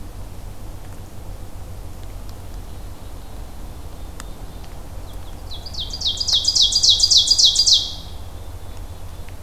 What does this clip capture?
Black-capped Chickadee, Ovenbird